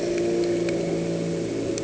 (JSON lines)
{"label": "anthrophony, boat engine", "recorder": "HydroMoth"}